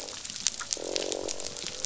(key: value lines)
label: biophony, croak
recorder: SoundTrap 500